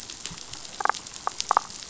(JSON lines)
{"label": "biophony, damselfish", "recorder": "SoundTrap 500"}